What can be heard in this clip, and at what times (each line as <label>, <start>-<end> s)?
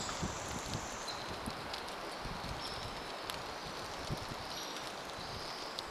unidentified bird chip note, 0-2 s
Pacific Wren song, 0-6 s
rain, 0-6 s
Hairy Woodpecker call, 2-6 s